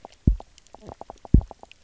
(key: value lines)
label: biophony, knock croak
recorder: SoundTrap 300